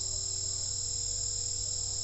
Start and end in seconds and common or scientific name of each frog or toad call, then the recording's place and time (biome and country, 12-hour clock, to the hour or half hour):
none
Cerrado, Brazil, ~7pm